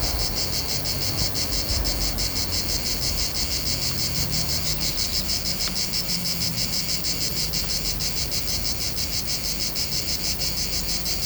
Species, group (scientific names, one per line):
Cicada orni
Cicadidae